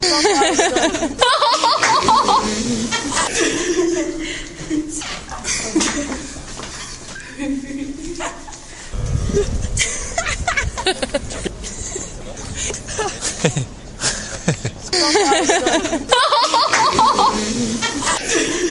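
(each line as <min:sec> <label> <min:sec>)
0:00.1 A woman is laughing outside. 0:01.2
0:01.2 People laughing and giggling in a room. 0:08.9
0:01.7 A person claps loudly once. 0:02.1
0:05.0 Squeaking noise in a room. 0:05.4
0:08.8 People laughing and giggling. 0:16.1
0:08.9 A microphone hums loudly. 0:10.2
0:11.0 People talking in the distance. 0:15.9
0:15.0 A person calls out loudly once from a distance. 0:16.1
0:16.1 People laughing and giggling indoors. 0:18.7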